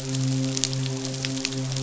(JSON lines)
{"label": "biophony, midshipman", "recorder": "SoundTrap 500"}